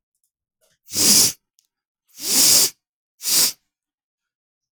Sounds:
Sniff